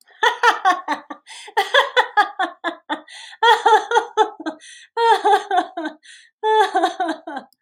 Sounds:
Laughter